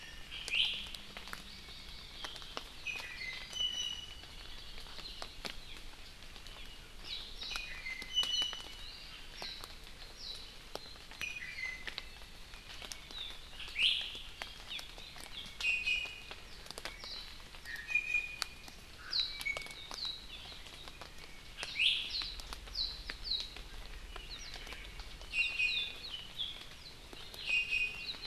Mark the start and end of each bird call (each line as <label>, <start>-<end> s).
Iiwi (Drepanis coccinea), 0.5-0.8 s
Hawaii Amakihi (Chlorodrepanis virens), 1.0-2.3 s
Iiwi (Drepanis coccinea), 2.8-4.4 s
Hawaii Creeper (Loxops mana), 4.3-5.4 s
Warbling White-eye (Zosterops japonicus), 7.0-7.3 s
Iiwi (Drepanis coccinea), 7.5-9.1 s
Warbling White-eye (Zosterops japonicus), 9.4-9.6 s
Warbling White-eye (Zosterops japonicus), 10.1-10.5 s
Iiwi (Drepanis coccinea), 11.2-11.9 s
Iiwi (Drepanis coccinea), 13.7-14.1 s
Hawaii Amakihi (Chlorodrepanis virens), 14.7-14.8 s
Iiwi (Drepanis coccinea), 15.6-16.4 s
Warbling White-eye (Zosterops japonicus), 17.0-17.4 s
Iiwi (Drepanis coccinea), 17.7-18.8 s
Warbling White-eye (Zosterops japonicus), 19.1-19.5 s
Warbling White-eye (Zosterops japonicus), 19.9-20.2 s
Iiwi (Drepanis coccinea), 21.7-22.1 s
Warbling White-eye (Zosterops japonicus), 22.1-22.4 s
Warbling White-eye (Zosterops japonicus), 22.7-23.6 s
Iiwi (Drepanis coccinea), 25.3-26.0 s
Iiwi (Drepanis coccinea), 27.3-28.2 s